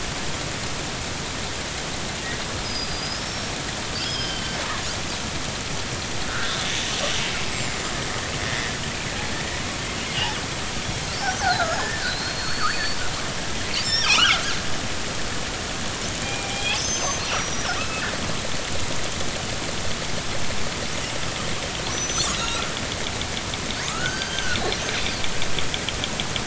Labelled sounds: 2.6	4.6	killer whale, northern resident, G clan, 3.0 to 5.6 kHz
6.3	6.6	killer whale, northern resident, G clan, 1.2 to 1.7 kHz
7.5	7.9	killer whale, northern resident, G clan, 7.1 to 7.7 kHz
11.4	13.0	killer whale, northern resident, G clan, 1.2 to 4.5 kHz
13.8	14.4	killer whale, northern resident, G clan, 0.80 to 5.8 kHz
16.2	18.1	killer whale, northern resident, G clan, 0.80 to 6.4 kHz
21.9	22.6	killer whale, northern resident, G clan, 1.2 to 6.1 kHz
23.8	24.6	killer whale, northern resident, G clan, 1.0 to 4.8 kHz

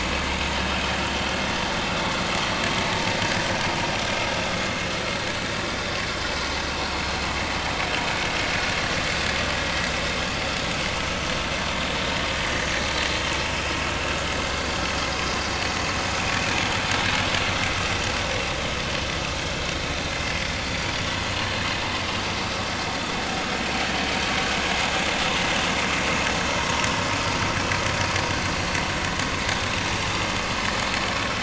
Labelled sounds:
11.3	11.5	vessel noise, 5.8 to 6.0 kHz
16.2	16.5	vessel noise, 2.3 to 2.7 kHz

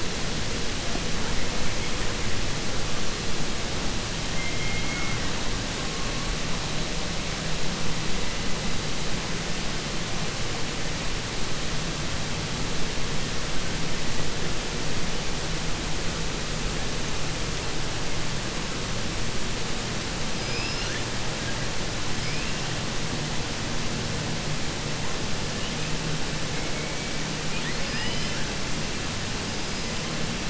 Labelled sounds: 20.3	21.0	killer whale, 1.4 to 6.0 kHz
27.4	28.4	killer whale, 0.95 to 5.8 kHz

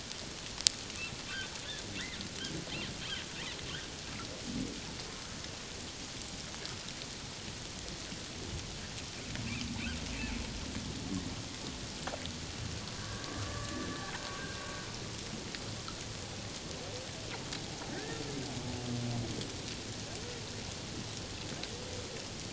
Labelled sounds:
13.3	13.9	humpback whale, 1.1 to 1.9 kHz
17.9	18.2	humpback whale, 1.5 to 1.9 kHz

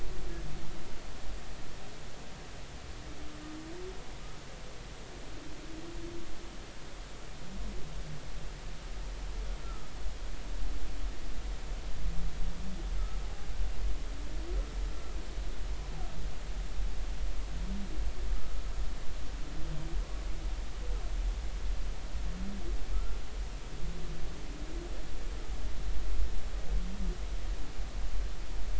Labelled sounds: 9.6	9.9	humpback whale, 1.2 to 1.4 kHz

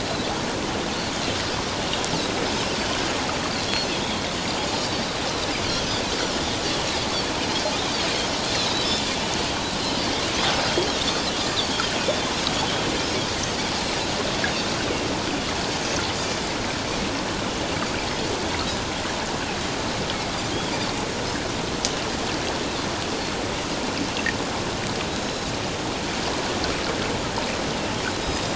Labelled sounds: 3.9	4.2	Pacific white-sided dolphin, 3.2 to 3.8 kHz
4.7	5.0	Pacific white-sided dolphin, 4.4 to 5.0 kHz
8.5	8.9	Pacific white-sided dolphin, 3.6 to 4.3 kHz
12.0	12.3	Pacific white-sided dolphin, 3.3 to 3.6 kHz
25.1	25.5	Pacific white-sided dolphin, 3.8 to 6.7 kHz
28.2	28.5	Pacific white-sided dolphin, 3.7 to 5.1 kHz

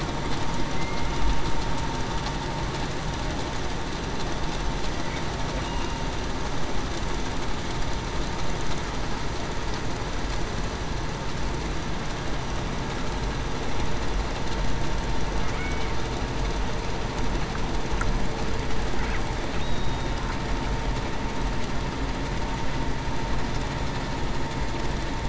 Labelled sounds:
5.6	6.0	killer whale, Bigg's (transient), 2.8 to 2.9 kHz
19.6	20.1	killer whale, Bigg's (transient), 3.6 to 3.8 kHz

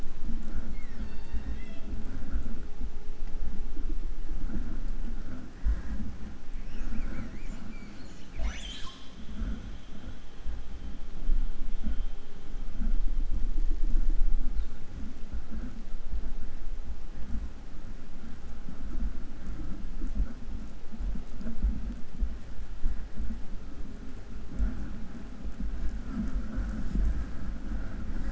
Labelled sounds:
0.7	2.1	killer whale, southern resident, J pod, call S01, 0.30 to 6.2 kHz
6.5	9.3	killer whale, 0.54 to 8.0 kHz

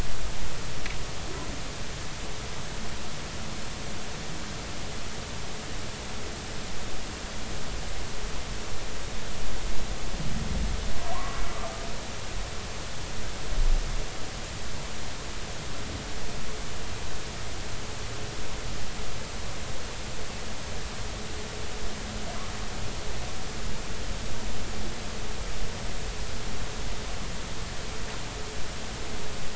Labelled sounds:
11.1	11.4	humpback whale, 0.93 to 1.3 kHz

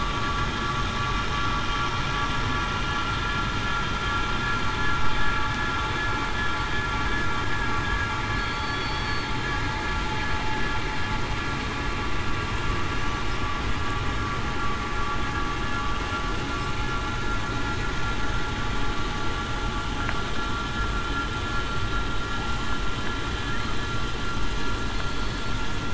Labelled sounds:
8.4	9.4	killer whale, southern resident, 4.1 to 4.5 kHz
25.1	25.4	killer whale, southern resident, 4.4 to 4.5 kHz

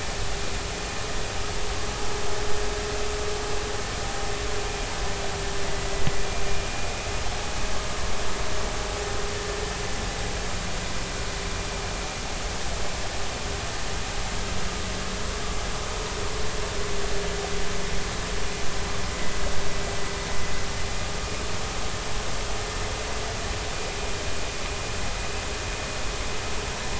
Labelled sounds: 5.6	5.9	vessel noise, 1.95 to 2.02 kHz
6.8	7.1	vessel noise, 2.4 to 2.7 kHz

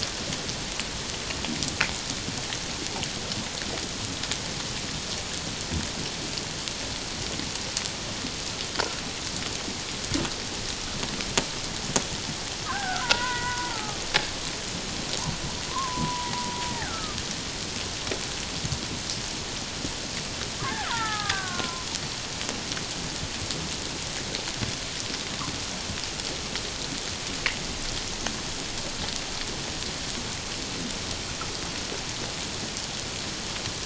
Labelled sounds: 12.7	14.0	killer whale, Bigg's (transient), 0.78 to 2.0 kHz
15.7	17.2	killer whale, Bigg's (transient), 0.88 to 2.0 kHz
20.6	21.9	killer whale, Bigg's (transient), 0.78 to 2.0 kHz

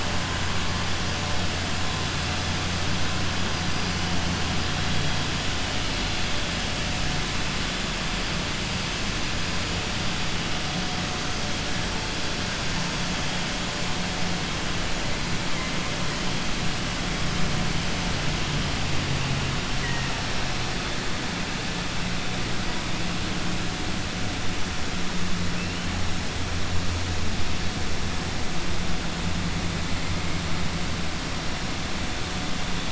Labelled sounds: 19.7	20.2	killer whale, southern resident, 0.91 to 2.9 kHz

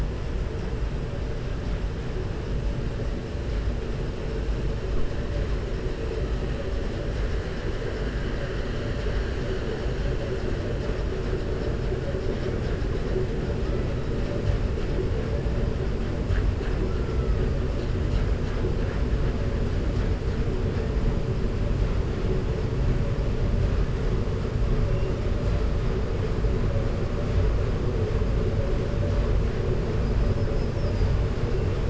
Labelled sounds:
30.3	31.1	killer whale, 4.7 to 5.5 kHz

